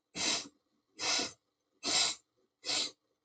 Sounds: Sniff